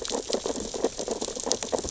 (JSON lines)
{"label": "biophony, sea urchins (Echinidae)", "recorder": "SoundTrap 600 or HydroMoth"}